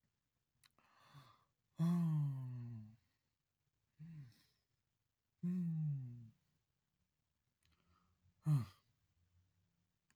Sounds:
Sigh